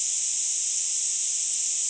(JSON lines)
{"label": "ambient", "recorder": "HydroMoth"}